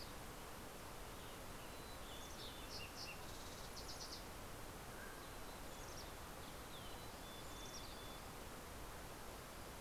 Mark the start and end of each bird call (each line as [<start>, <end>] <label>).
[0.00, 0.61] Mountain Chickadee (Poecile gambeli)
[0.41, 3.11] Western Tanager (Piranga ludoviciana)
[2.41, 4.61] Fox Sparrow (Passerella iliaca)
[4.31, 5.71] Mountain Quail (Oreortyx pictus)
[5.31, 9.01] Mountain Chickadee (Poecile gambeli)